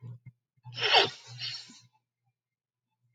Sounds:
Sniff